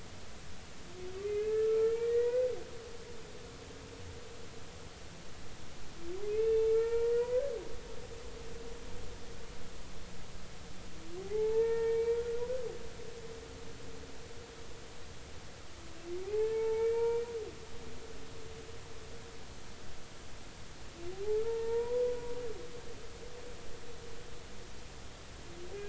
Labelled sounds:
1.2	2.5	humpback whale, 1.3 to 2.6 kHz
6.3	7.4	humpback whale, 0.86 to 2.7 kHz
11.2	12.2	humpback whale, 0.80 to 2.4 kHz
16.2	17.3	humpback whale, 0.80 to 2.7 kHz
21.4	22.0	humpback whale, 0.86 to 1.9 kHz

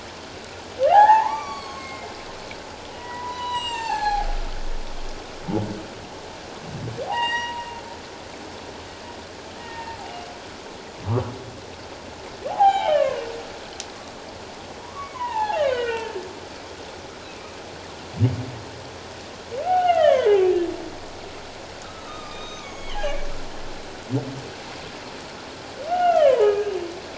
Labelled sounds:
0.9	2.1	humpback whale, 0.78 to 6.6 kHz
2.9	4.3	humpback whale, 0.78 to 7.9 kHz
7.1	7.7	humpback whale, 0.78 to 7.7 kHz
9.6	10.0	humpback whale, 0.84 to 1.9 kHz
12.5	13.2	humpback whale, 0.78 to 3.3 kHz
14.8	16.1	humpback whale, 0.78 to 3.2 kHz
19.6	20.4	humpback whale, 0.78 to 3.0 kHz
21.8	23.2	humpback whale, 1.0 to 6.3 kHz
25.9	26.7	humpback whale, 0.81 to 3.4 kHz

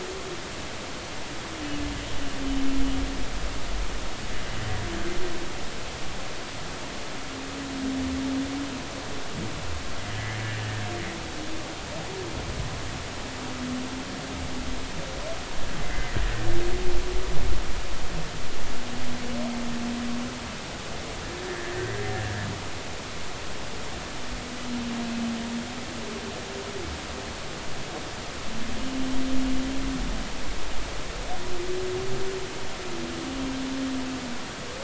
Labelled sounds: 10.1	10.4	humpback whale, 1.6 to 2.2 kHz
15.8	16.2	humpback whale, 1.9 to 2.1 kHz
21.5	21.7	humpback whale, 1.6 to 1.9 kHz

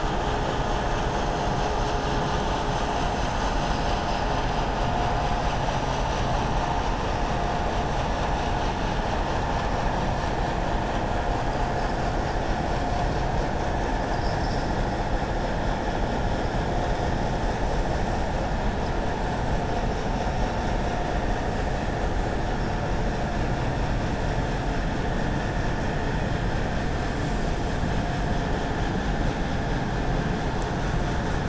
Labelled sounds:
14.0	14.7	vessel noise, 4.6 to 6.0 kHz

